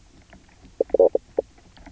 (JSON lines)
{"label": "biophony, knock croak", "recorder": "SoundTrap 300"}